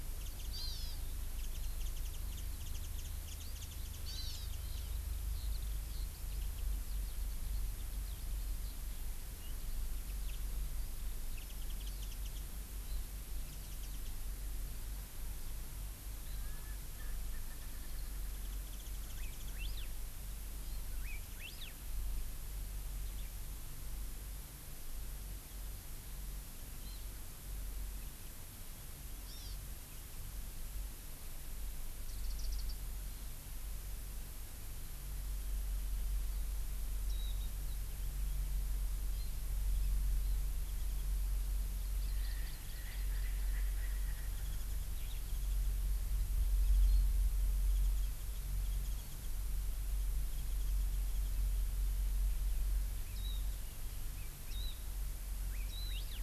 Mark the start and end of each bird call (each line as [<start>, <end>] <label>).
[0.20, 0.50] Warbling White-eye (Zosterops japonicus)
[0.50, 1.00] Hawaii Amakihi (Chlorodrepanis virens)
[1.40, 4.90] Warbling White-eye (Zosterops japonicus)
[4.00, 4.50] Hawaii Amakihi (Chlorodrepanis virens)
[5.30, 8.70] Eurasian Skylark (Alauda arvensis)
[11.40, 12.40] Warbling White-eye (Zosterops japonicus)
[13.50, 14.10] Warbling White-eye (Zosterops japonicus)
[16.30, 18.20] Erckel's Francolin (Pternistis erckelii)
[18.30, 19.50] Warbling White-eye (Zosterops japonicus)
[19.20, 19.90] Hawaii Elepaio (Chasiempis sandwichensis)
[20.90, 21.80] Hawaii Elepaio (Chasiempis sandwichensis)
[26.80, 27.10] Hawaii Amakihi (Chlorodrepanis virens)
[29.30, 29.60] Hawaii Amakihi (Chlorodrepanis virens)
[32.10, 32.70] Warbling White-eye (Zosterops japonicus)
[37.10, 37.30] Warbling White-eye (Zosterops japonicus)
[41.80, 43.50] Hawaii Amakihi (Chlorodrepanis virens)
[42.10, 44.30] Erckel's Francolin (Pternistis erckelii)
[44.30, 45.70] Warbling White-eye (Zosterops japonicus)
[47.70, 49.30] Warbling White-eye (Zosterops japonicus)
[53.20, 53.40] Warbling White-eye (Zosterops japonicus)
[54.20, 54.80] Hawaii Elepaio (Chasiempis sandwichensis)
[54.50, 54.80] Warbling White-eye (Zosterops japonicus)
[55.50, 56.20] Hawaii Elepaio (Chasiempis sandwichensis)
[55.70, 56.00] Warbling White-eye (Zosterops japonicus)